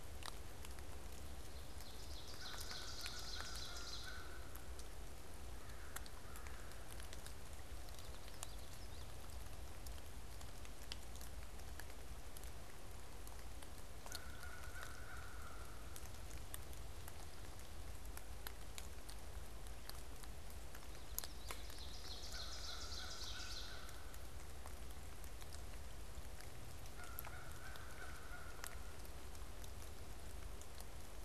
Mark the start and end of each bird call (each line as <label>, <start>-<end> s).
Ovenbird (Seiurus aurocapilla), 1.5-4.2 s
American Crow (Corvus brachyrhynchos), 5.5-7.0 s
American Crow (Corvus brachyrhynchos), 13.9-16.3 s
Ovenbird (Seiurus aurocapilla), 21.0-24.0 s
American Crow (Corvus brachyrhynchos), 26.8-29.2 s